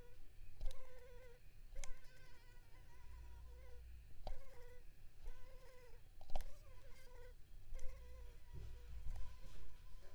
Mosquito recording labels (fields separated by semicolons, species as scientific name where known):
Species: Anopheles arabiensis; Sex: female; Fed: unfed; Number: one; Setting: cup